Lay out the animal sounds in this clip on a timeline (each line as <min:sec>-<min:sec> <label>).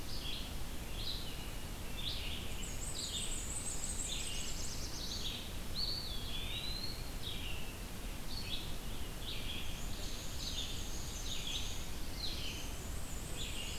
0:00.0-0:13.8 Red-eyed Vireo (Vireo olivaceus)
0:02.5-0:04.7 Black-and-white Warbler (Mniotilta varia)
0:04.0-0:05.5 Black-throated Blue Warbler (Setophaga caerulescens)
0:05.6-0:07.3 Eastern Wood-Pewee (Contopus virens)
0:09.4-0:13.8 Black-and-white Warbler (Mniotilta varia)